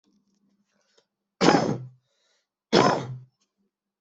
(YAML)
expert_labels:
- quality: good
  cough_type: dry
  dyspnea: false
  wheezing: false
  stridor: false
  choking: false
  congestion: false
  nothing: true
  diagnosis: upper respiratory tract infection
  severity: mild
age: 42
gender: male
respiratory_condition: false
fever_muscle_pain: false
status: healthy